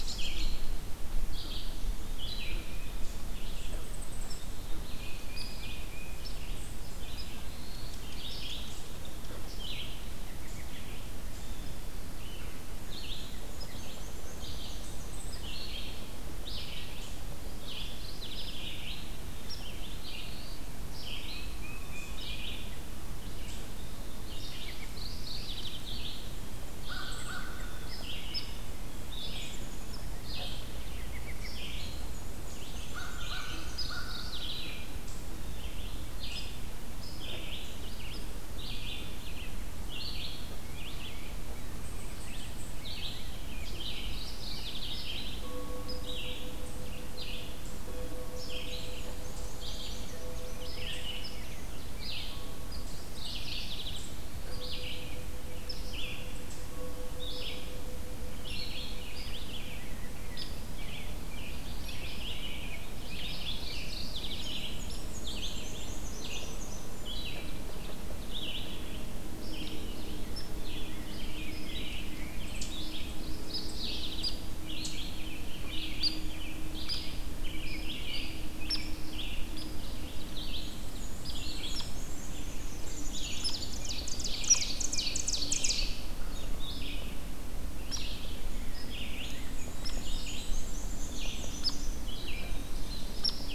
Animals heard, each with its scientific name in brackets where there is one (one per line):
Ovenbird (Seiurus aurocapilla)
Mourning Warbler (Geothlypis philadelphia)
Rose-breasted Grosbeak (Pheucticus ludovicianus)
Black-capped Chickadee (Poecile atricapillus)
Black-throated Blue Warbler (Setophaga caerulescens)
Black-and-white Warbler (Mniotilta varia)
American Crow (Corvus brachyrhynchos)
Red-eyed Vireo (Vireo olivaceus)
Hairy Woodpecker (Dryobates villosus)
Tufted Titmouse (Baeolophus bicolor)
American Robin (Turdus migratorius)